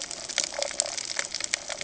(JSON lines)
{"label": "ambient", "recorder": "HydroMoth"}